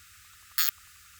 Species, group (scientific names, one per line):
Poecilimon zimmeri
Orthoptera